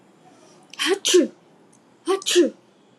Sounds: Sneeze